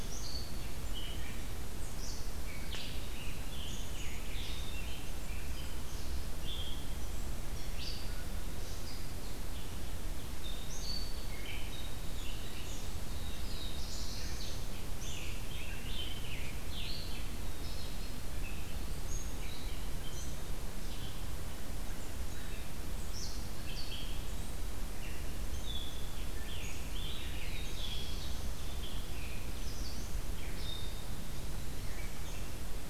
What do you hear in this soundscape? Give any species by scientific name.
Setophaga caerulescens, Vireo olivaceus, Piranga olivacea, Setophaga fusca